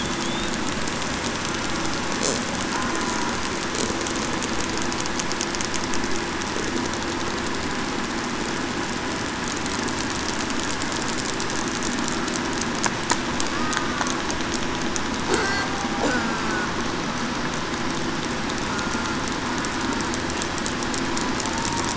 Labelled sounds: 18.7	19.0	killer whale, southern resident, 1.4 to 8.0 kHz

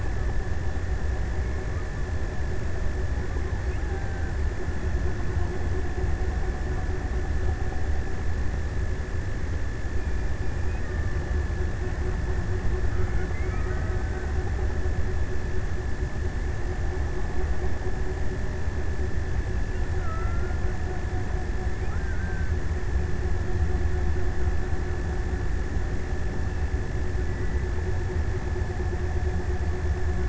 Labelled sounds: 3.5	5.4	killer whale, Bigg's (transient), 0.40 to 2.0 kHz
12.6	15.6	killer whale, Bigg's (transient), 0.76 to 2.8 kHz
19.4	21.3	killer whale, Bigg's (transient), 0.91 to 2.1 kHz
21.6	23.1	killer whale, Bigg's (transient), 1.1 to 2.1 kHz

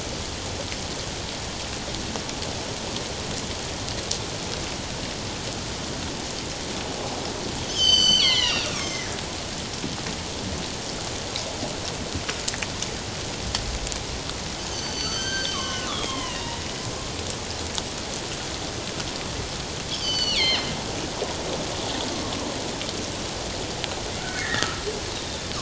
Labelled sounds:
7.7	9.1	killer whale, northern resident, G clan, 0.94 to 7.8 kHz
14.7	16.6	killer whale, northern resident, G clan, 0.94 to 6.5 kHz
19.9	20.7	killer whale, northern resident, G clan, 1.8 to 6.2 kHz
24.2	24.8	killer whale, northern resident, G clan, 1.2 to 2.3 kHz

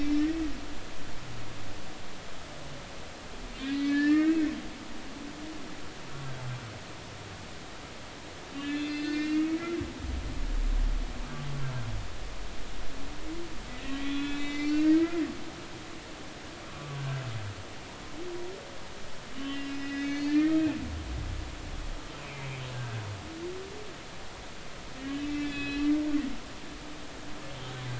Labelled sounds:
3.6	4.4	humpback whale, 1.2 to 4.4 kHz
8.6	9.6	humpback whale, 1.7 to 5.5 kHz
13.8	15.2	humpback whale, 1.3 to 4.6 kHz
16.7	17.2	humpback whale, 1.1 to 1.6 kHz
19.3	20.6	humpback whale, 1.6 to 5.1 kHz
22.7	23.0	humpback whale, 1.5 to 1.7 kHz
25.2	25.9	humpback whale, 1.7 to 4.1 kHz

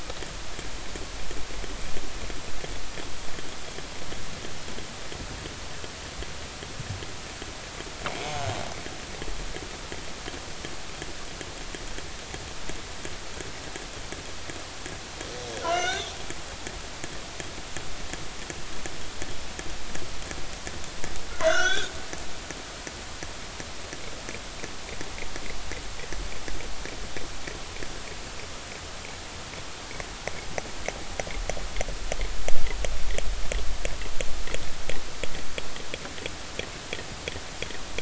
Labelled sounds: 8.1	8.5	killer whale, northern resident, G clan, 0.80 to 6.7 kHz
15.6	16.1	killer whale, northern resident, G clan, 1.3 to 6.2 kHz
21.4	21.9	killer whale, northern resident, G clan, 1.3 to 6.5 kHz

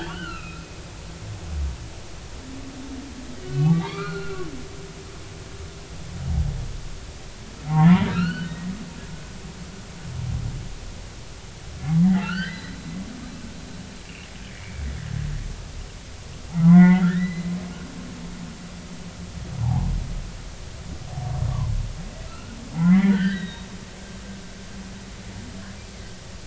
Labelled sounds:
0.0	0.8	humpback whale, 1.2 to 3.2 kHz
3.4	4.5	humpback whale, 0.80 to 4.4 kHz
7.7	8.7	humpback whale, 0.80 to 4.6 kHz
12.0	12.8	humpback whale, 0.80 to 4.7 kHz
14.5	14.8	humpback whale, 2.1 to 2.4 kHz
16.5	17.4	humpback whale, 0.80 to 2.2 kHz
18.2	18.5	humpback whale, 3.9 to 4.1 kHz
19.6	19.9	humpback whale, 0.80 to 1.1 kHz
22.3	23.7	humpback whale, 0.80 to 3.9 kHz

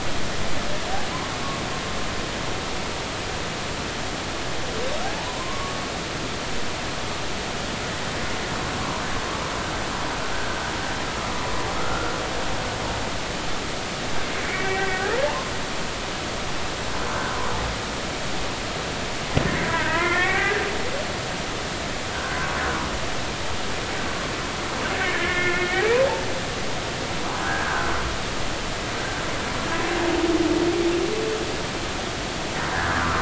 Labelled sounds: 5.0	5.7	humpback whale, 0.80 to 1.2 kHz
11.8	12.2	humpback whale, 1.2 to 1.5 kHz
14.4	15.5	humpback whale, 0.83 to 2.4 kHz
19.5	20.6	humpback whale, 0.80 to 2.4 kHz
22.1	22.4	humpback whale, 1.3 to 1.7 kHz
25.1	25.7	humpback whale, 1.3 to 2.5 kHz
27.4	27.9	humpback whale, 1.3 to 1.7 kHz
32.7	33.2	humpback whale, 0.96 to 1.9 kHz

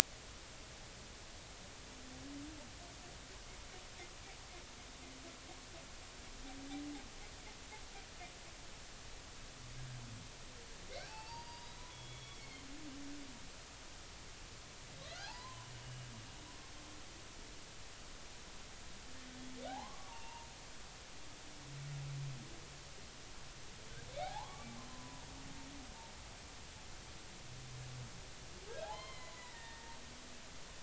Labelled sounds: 11.1	12.7	humpback whale, 0.80 to 4.9 kHz
15.2	16.1	humpback whale, 0.80 to 2.9 kHz
19.7	20.5	humpback whale, 0.80 to 2.9 kHz
24.2	25.3	humpback whale, 0.80 to 2.4 kHz
28.7	30.0	humpback whale, 0.80 to 4.3 kHz

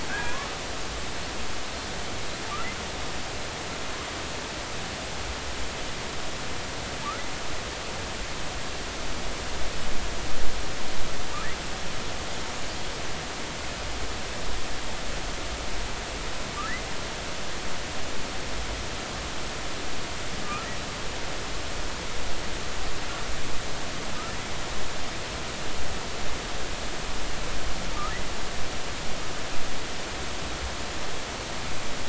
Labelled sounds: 0.1	0.5	killer whale, Bigg's (transient), 0.90 to 1.7 kHz

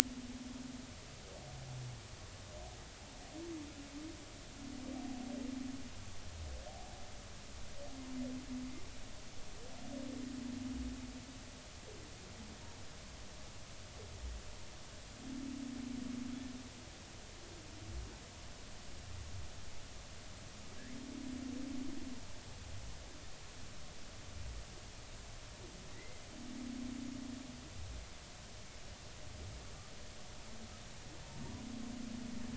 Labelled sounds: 25.9	26.2	humpback whale, 1.9 to 2.1 kHz

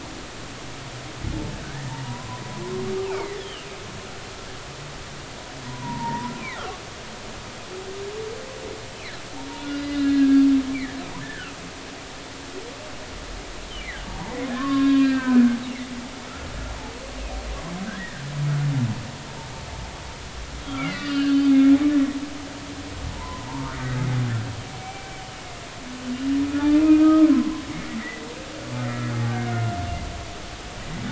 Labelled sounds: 1.6	2.3	humpback whale, 0.86 to 2.0 kHz
3.1	3.7	humpback whale, 1.9 to 3.6 kHz
5.7	6.8	humpback whale, 0.86 to 2.0 kHz
8.9	9.2	humpback whale, 1.6 to 2.7 kHz
9.9	10.4	humpback whale, 1.6 to 1.8 kHz
11.2	12.0	humpback whale, 1.3 to 2.4 kHz
13.8	16.0	humpback whale, 0.80 to 4.8 kHz
17.9	18.2	humpback whale, 1.4 to 2.0 kHz
20.6	21.5	humpback whale, 1.1 to 5.0 kHz
23.1	23.7	humpback whale, 0.83 to 1.1 kHz
24.7	25.1	humpback whale, 0.80 to 2.4 kHz
26.4	27.6	humpback whale, 0.96 to 2.6 kHz
28.0	28.3	humpback whale, 1.9 to 2.1 kHz
29.1	29.8	humpback whale, 0.80 to 1.5 kHz

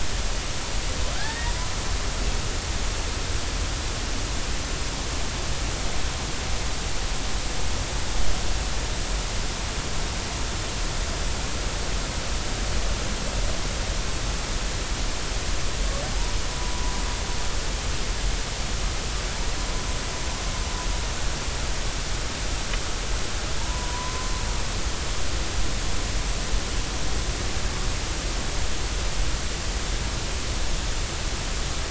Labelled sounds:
1.1	1.5	humpback whale, 1.5 to 2.0 kHz
23.6	24.3	humpback whale, 0.83 to 1.1 kHz

